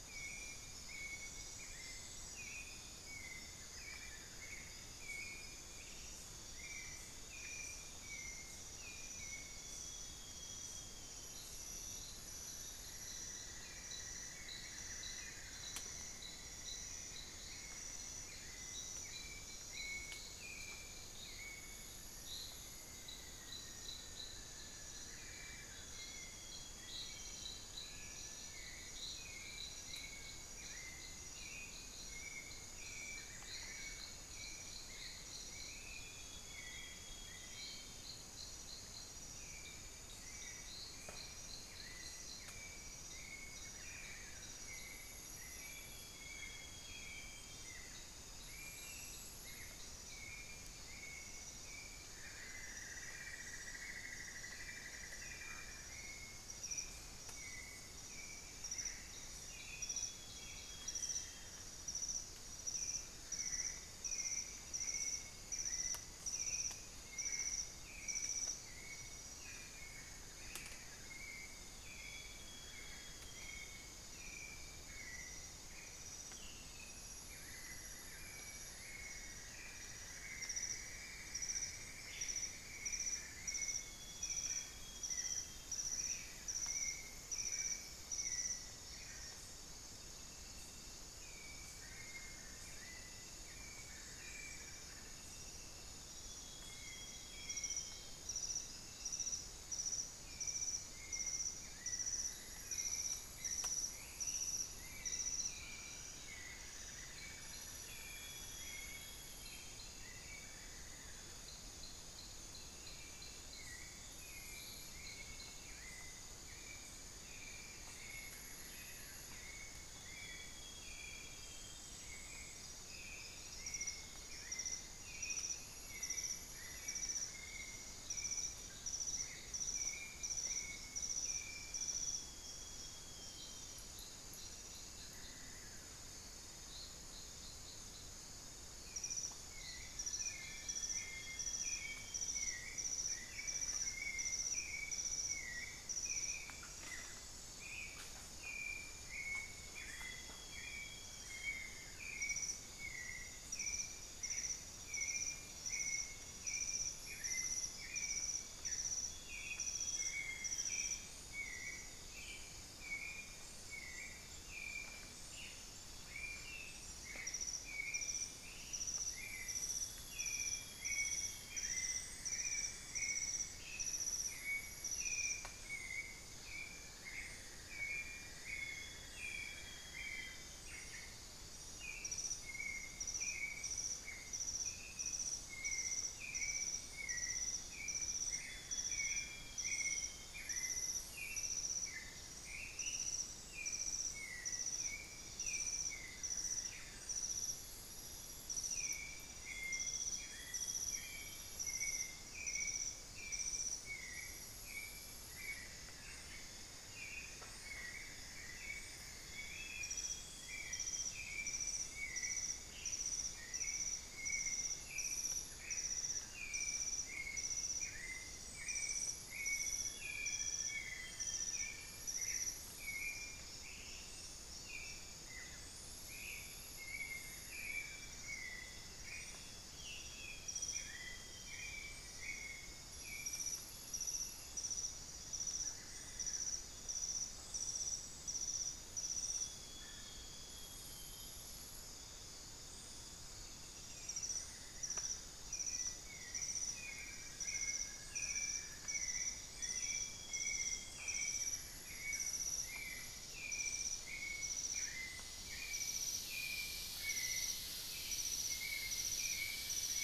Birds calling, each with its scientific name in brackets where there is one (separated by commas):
Ringed Antpipit (Corythopis torquatus), Long-winged Antwren (Myrmotherula longipennis), Buff-throated Woodcreeper (Xiphorhynchus guttatus), Western Striolated-Puffbird (Nystalus obamai), Cinnamon-throated Woodcreeper (Dendrexetastes rufigula), Elegant Woodcreeper (Xiphorhynchus elegans), Plumbeous Pigeon (Patagioenas plumbea), Grayish Mourner (Rhytipterna simplex), Amazonian Barred-Woodcreeper (Dendrocolaptes certhia), Black-faced Antthrush (Formicarius analis), unidentified bird, Amazonian Grosbeak (Cyanoloxia rothschildii), White-necked Thrush (Turdus albicollis)